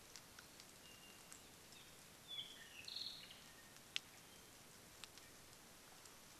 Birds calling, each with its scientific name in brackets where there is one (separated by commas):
Apapane (Himatione sanguinea)